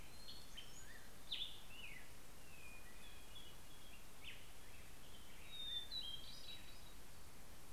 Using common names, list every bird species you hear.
Hermit Thrush, Black-headed Grosbeak